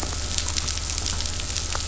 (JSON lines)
{"label": "anthrophony, boat engine", "recorder": "SoundTrap 500"}